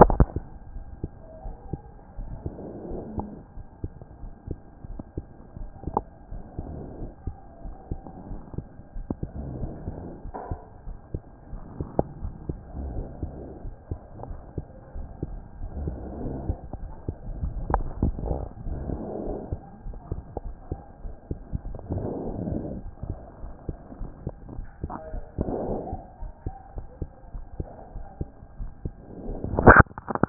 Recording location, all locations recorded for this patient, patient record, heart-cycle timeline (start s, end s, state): aortic valve (AV)
aortic valve (AV)+pulmonary valve (PV)+tricuspid valve (TV)+mitral valve (MV)
#Age: Child
#Sex: Male
#Height: 128.0 cm
#Weight: 24.1 kg
#Pregnancy status: False
#Murmur: Absent
#Murmur locations: nan
#Most audible location: nan
#Systolic murmur timing: nan
#Systolic murmur shape: nan
#Systolic murmur grading: nan
#Systolic murmur pitch: nan
#Systolic murmur quality: nan
#Diastolic murmur timing: nan
#Diastolic murmur shape: nan
#Diastolic murmur grading: nan
#Diastolic murmur pitch: nan
#Diastolic murmur quality: nan
#Outcome: Abnormal
#Campaign: 2014 screening campaign
0.00	0.72	unannotated
0.72	0.84	S1
0.84	1.02	systole
1.02	1.10	S2
1.10	1.44	diastole
1.44	1.56	S1
1.56	1.72	systole
1.72	1.80	S2
1.80	2.18	diastole
2.18	2.30	S1
2.30	2.44	systole
2.44	2.54	S2
2.54	2.88	diastole
2.88	3.02	S1
3.02	3.16	systole
3.16	3.28	S2
3.28	3.58	diastole
3.58	3.66	S1
3.66	3.82	systole
3.82	3.92	S2
3.92	4.22	diastole
4.22	4.32	S1
4.32	4.48	systole
4.48	4.58	S2
4.58	4.88	diastole
4.88	5.00	S1
5.00	5.16	systole
5.16	5.26	S2
5.26	5.58	diastole
5.58	30.29	unannotated